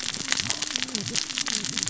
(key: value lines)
label: biophony, cascading saw
recorder: SoundTrap 600 or HydroMoth